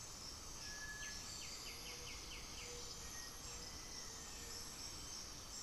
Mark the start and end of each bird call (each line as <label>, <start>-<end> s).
Cinereous Tinamou (Crypturellus cinereus), 0.0-5.6 s
Gray-fronted Dove (Leptotila rufaxilla), 0.0-5.6 s
Chestnut-winged Foliage-gleaner (Dendroma erythroptera), 0.6-3.6 s
White-winged Becard (Pachyramphus polychopterus), 0.8-2.9 s
Black-faced Antthrush (Formicarius analis), 3.0-4.6 s